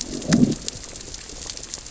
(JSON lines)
{"label": "biophony, growl", "recorder": "SoundTrap 600 or HydroMoth"}